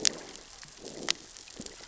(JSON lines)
{"label": "biophony, growl", "recorder": "SoundTrap 600 or HydroMoth"}